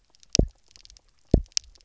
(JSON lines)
{"label": "biophony, double pulse", "recorder": "SoundTrap 300"}